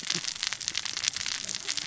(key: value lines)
label: biophony, cascading saw
recorder: SoundTrap 600 or HydroMoth